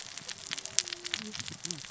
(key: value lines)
label: biophony, cascading saw
recorder: SoundTrap 600 or HydroMoth